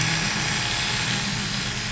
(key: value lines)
label: anthrophony, boat engine
recorder: SoundTrap 500